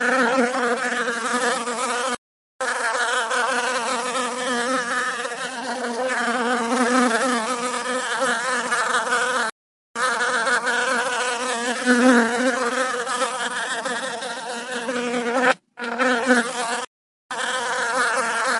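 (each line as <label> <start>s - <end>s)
A bee buzzing steadily with occasional small pauses. 0.0s - 18.6s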